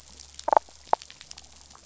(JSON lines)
{"label": "biophony, damselfish", "recorder": "SoundTrap 500"}